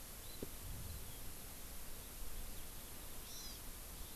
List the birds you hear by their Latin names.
Chlorodrepanis virens